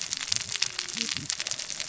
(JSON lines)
{"label": "biophony, cascading saw", "recorder": "SoundTrap 600 or HydroMoth"}